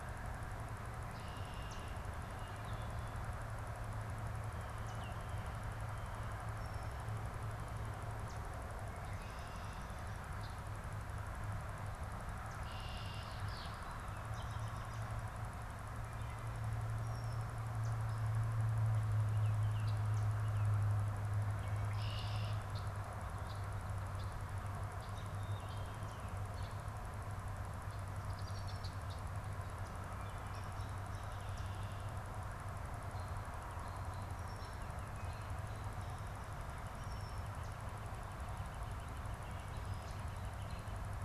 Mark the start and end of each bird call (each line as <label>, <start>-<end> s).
Red-winged Blackbird (Agelaius phoeniceus), 0.8-2.0 s
Yellow Warbler (Setophaga petechia), 1.6-1.9 s
Yellow Warbler (Setophaga petechia), 4.8-5.0 s
Yellow Warbler (Setophaga petechia), 8.2-8.4 s
Red-winged Blackbird (Agelaius phoeniceus), 10.3-10.6 s
Red-winged Blackbird (Agelaius phoeniceus), 12.2-13.7 s
Yellow Warbler (Setophaga petechia), 12.3-12.8 s
Yellow Warbler (Setophaga petechia), 17.8-18.1 s
Hairy Woodpecker (Dryobates villosus), 18.1-18.1 s
Baltimore Oriole (Icterus galbula), 19.1-20.1 s
Red-winged Blackbird (Agelaius phoeniceus), 21.6-24.6 s
Red-winged Blackbird (Agelaius phoeniceus), 27.8-29.4 s
Northern Flicker (Colaptes auratus), 36.4-41.1 s